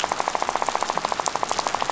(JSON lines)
{"label": "biophony, rattle", "recorder": "SoundTrap 500"}